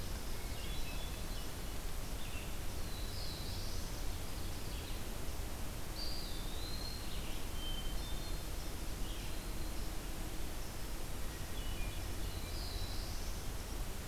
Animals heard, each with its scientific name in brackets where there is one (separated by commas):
Black-throated Blue Warbler (Setophaga caerulescens), Hermit Thrush (Catharus guttatus), Ovenbird (Seiurus aurocapilla), Eastern Wood-Pewee (Contopus virens), Black-throated Green Warbler (Setophaga virens)